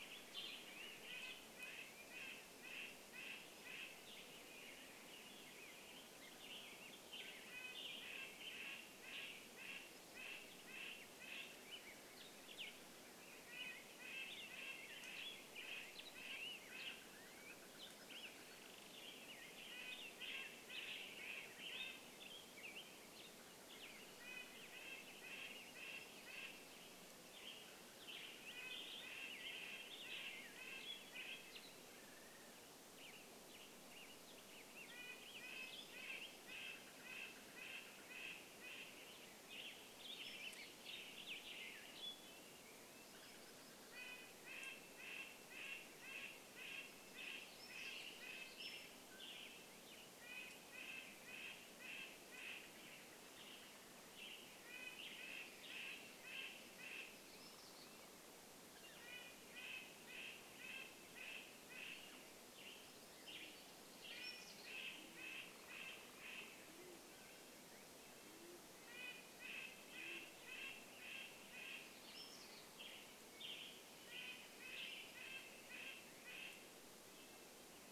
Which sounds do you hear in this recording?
Red-breasted Nuthatch song, Western Tanager song, Black-headed Grosbeak song, Evening Grosbeak call, Mountain Quail call, bird wingbeats, unidentified sound, Northern Flicker call, Dark-eyed Junco song, Band-tailed Pigeon call